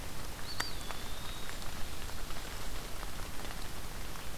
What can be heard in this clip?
Eastern Wood-Pewee